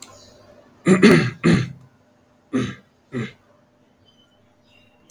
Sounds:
Throat clearing